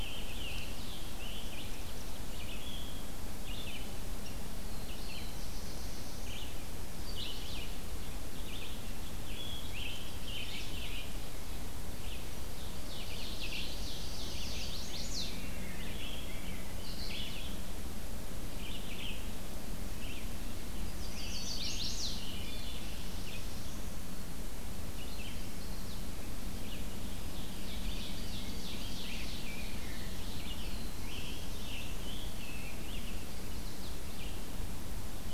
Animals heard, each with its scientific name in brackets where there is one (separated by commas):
Scarlet Tanager (Piranga olivacea), Rose-breasted Grosbeak (Pheucticus ludovicianus), Ovenbird (Seiurus aurocapilla), Black-throated Blue Warbler (Setophaga caerulescens), Chestnut-sided Warbler (Setophaga pensylvanica), Red-eyed Vireo (Vireo olivaceus)